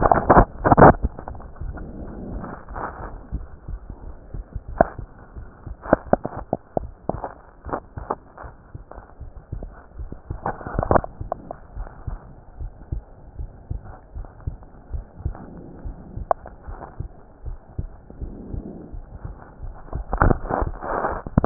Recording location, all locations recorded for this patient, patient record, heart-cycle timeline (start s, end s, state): pulmonary valve (PV)
aortic valve (AV)+pulmonary valve (PV)+tricuspid valve (TV)+mitral valve (MV)
#Age: Child
#Sex: Male
#Height: 147.0 cm
#Weight: 31.4 kg
#Pregnancy status: False
#Murmur: Absent
#Murmur locations: nan
#Most audible location: nan
#Systolic murmur timing: nan
#Systolic murmur shape: nan
#Systolic murmur grading: nan
#Systolic murmur pitch: nan
#Systolic murmur quality: nan
#Diastolic murmur timing: nan
#Diastolic murmur shape: nan
#Diastolic murmur grading: nan
#Diastolic murmur pitch: nan
#Diastolic murmur quality: nan
#Outcome: Normal
#Campaign: 2015 screening campaign
0.00	11.52	unannotated
11.52	11.74	diastole
11.74	11.90	S1
11.90	12.08	systole
12.08	12.22	S2
12.22	12.60	diastole
12.60	12.72	S1
12.72	12.88	systole
12.88	13.02	S2
13.02	13.38	diastole
13.38	13.50	S1
13.50	13.70	systole
13.70	13.82	S2
13.82	14.16	diastole
14.16	14.26	S1
14.26	14.44	systole
14.44	14.58	S2
14.58	14.90	diastole
14.90	15.04	S1
15.04	15.24	systole
15.24	15.38	S2
15.38	15.80	diastole
15.80	15.96	S1
15.96	16.18	systole
16.18	16.28	S2
16.28	16.65	diastole
16.65	16.80	S1
16.80	16.98	systole
16.98	17.14	S2
17.14	17.46	diastole
17.46	17.58	S1
17.58	17.76	systole
17.76	17.90	S2
17.90	18.20	diastole
18.20	18.34	S1
18.34	18.52	systole
18.52	18.64	S2
18.64	18.94	diastole
18.94	19.04	S1
19.04	19.24	systole
19.24	19.36	S2
19.36	19.62	diastole
19.62	19.76	S1
19.76	21.46	unannotated